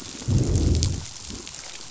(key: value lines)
label: biophony, growl
recorder: SoundTrap 500